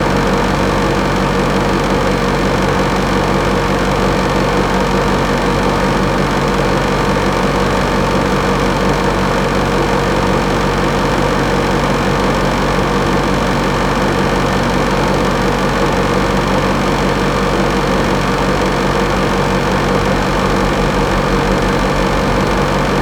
Is the noise made by a running engine?
yes